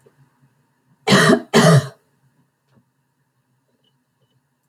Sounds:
Cough